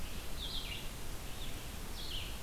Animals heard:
Red-eyed Vireo (Vireo olivaceus)

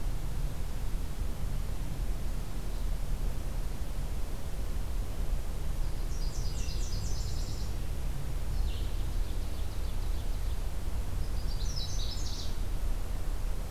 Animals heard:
Nashville Warbler (Leiothlypis ruficapilla)
Canada Warbler (Cardellina canadensis)
Ovenbird (Seiurus aurocapilla)

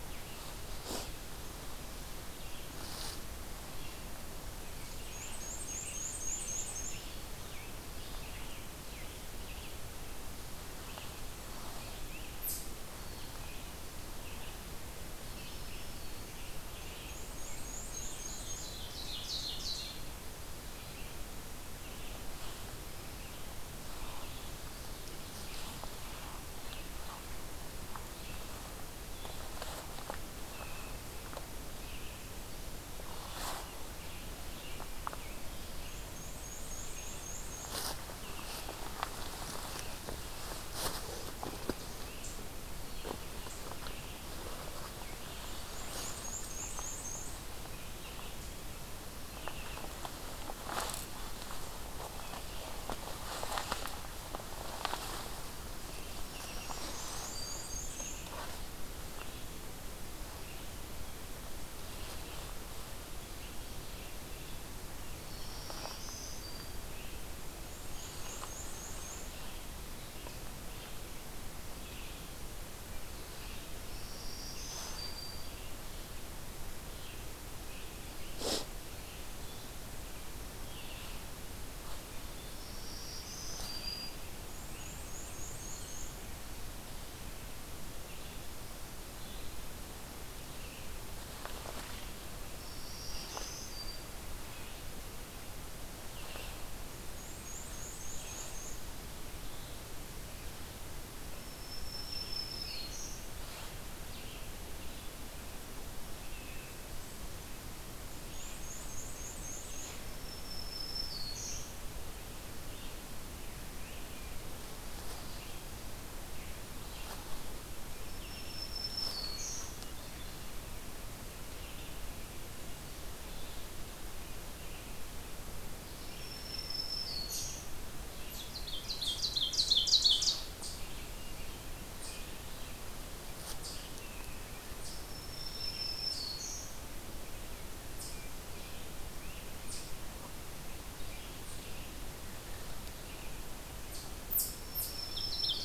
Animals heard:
Scarlet Tanager (Piranga olivacea)
Ovenbird (Seiurus aurocapilla)
Black-and-white Warbler (Mniotilta varia)
Red-eyed Vireo (Vireo olivaceus)
Eastern Chipmunk (Tamias striatus)
Black-throated Green Warbler (Setophaga virens)

